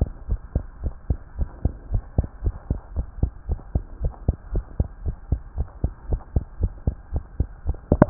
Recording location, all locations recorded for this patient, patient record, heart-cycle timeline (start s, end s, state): tricuspid valve (TV)
aortic valve (AV)+pulmonary valve (PV)+tricuspid valve (TV)+mitral valve (MV)
#Age: Child
#Sex: Male
#Height: 115.0 cm
#Weight: 19.7 kg
#Pregnancy status: False
#Murmur: Absent
#Murmur locations: nan
#Most audible location: nan
#Systolic murmur timing: nan
#Systolic murmur shape: nan
#Systolic murmur grading: nan
#Systolic murmur pitch: nan
#Systolic murmur quality: nan
#Diastolic murmur timing: nan
#Diastolic murmur shape: nan
#Diastolic murmur grading: nan
#Diastolic murmur pitch: nan
#Diastolic murmur quality: nan
#Outcome: Normal
#Campaign: 2015 screening campaign
0.00	0.27	unannotated
0.27	0.40	S1
0.40	0.52	systole
0.52	0.66	S2
0.66	0.82	diastole
0.82	0.94	S1
0.94	1.06	systole
1.06	1.18	S2
1.18	1.38	diastole
1.38	1.48	S1
1.48	1.62	systole
1.62	1.76	S2
1.76	1.92	diastole
1.92	2.04	S1
2.04	2.16	systole
2.16	2.30	S2
2.30	2.44	diastole
2.44	2.58	S1
2.58	2.68	systole
2.68	2.78	S2
2.78	2.94	diastole
2.94	3.06	S1
3.06	3.20	systole
3.20	3.34	S2
3.34	3.47	diastole
3.47	3.60	S1
3.60	3.73	systole
3.73	3.84	S2
3.84	4.00	diastole
4.00	4.14	S1
4.14	4.26	systole
4.26	4.36	S2
4.36	4.52	diastole
4.52	4.66	S1
4.66	4.78	systole
4.78	4.90	S2
4.90	5.04	diastole
5.04	5.16	S1
5.16	5.30	systole
5.30	5.40	S2
5.40	5.55	diastole
5.55	5.68	S1
5.68	5.82	systole
5.82	5.92	S2
5.92	6.08	diastole
6.08	6.22	S1
6.22	6.34	systole
6.34	6.46	S2
6.46	6.60	diastole
6.60	6.72	S1
6.72	6.86	systole
6.86	6.96	S2
6.96	7.12	diastole
7.12	7.24	S1
7.24	7.36	systole
7.36	7.48	S2
7.48	7.64	diastole
7.64	7.75	S1
7.75	8.10	unannotated